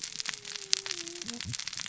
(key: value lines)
label: biophony, cascading saw
recorder: SoundTrap 600 or HydroMoth